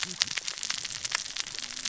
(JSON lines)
{"label": "biophony, cascading saw", "recorder": "SoundTrap 600 or HydroMoth"}